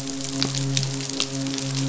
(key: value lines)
label: biophony, midshipman
recorder: SoundTrap 500